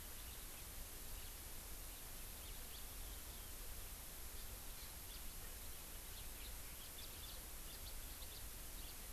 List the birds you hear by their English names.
House Finch